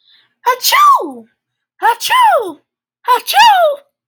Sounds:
Sneeze